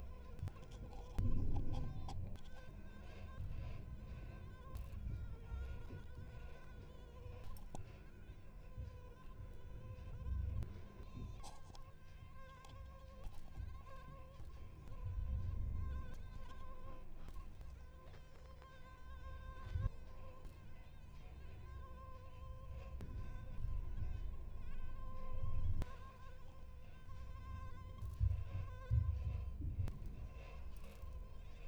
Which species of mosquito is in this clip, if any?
Anopheles coluzzii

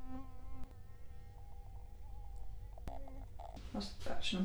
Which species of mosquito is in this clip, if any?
Culex quinquefasciatus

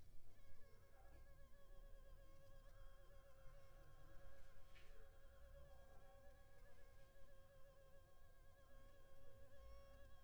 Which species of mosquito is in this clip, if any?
Culex pipiens complex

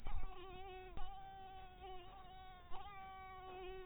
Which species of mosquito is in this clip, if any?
mosquito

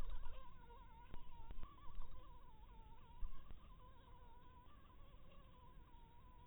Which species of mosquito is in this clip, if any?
mosquito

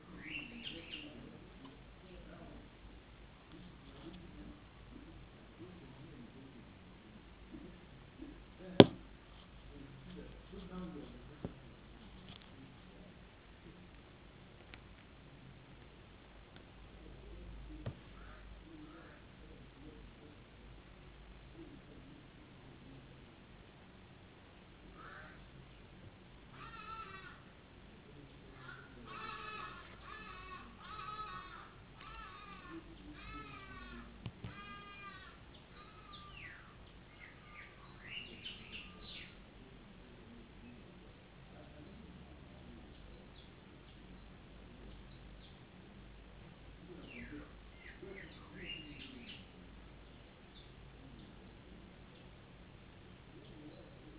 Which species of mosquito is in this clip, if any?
no mosquito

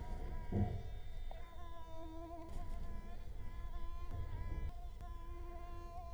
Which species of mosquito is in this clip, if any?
Culex quinquefasciatus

